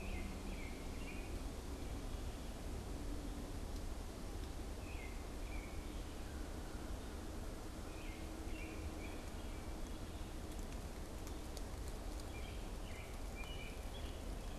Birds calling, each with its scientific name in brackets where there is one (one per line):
American Robin (Turdus migratorius)